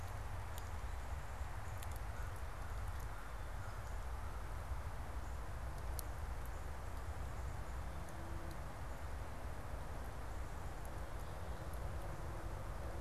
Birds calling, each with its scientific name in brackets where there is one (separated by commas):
American Crow (Corvus brachyrhynchos)